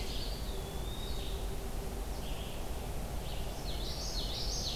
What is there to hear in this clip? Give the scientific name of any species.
Contopus virens, Vireo olivaceus, Geothlypis trichas